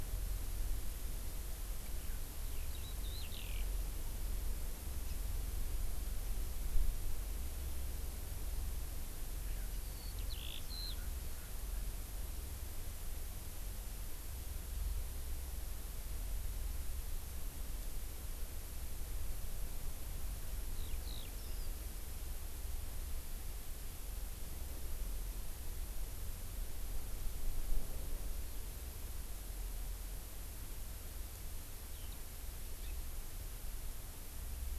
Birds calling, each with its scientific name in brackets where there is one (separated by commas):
House Finch (Haemorhous mexicanus), Eurasian Skylark (Alauda arvensis), Hawaii Amakihi (Chlorodrepanis virens)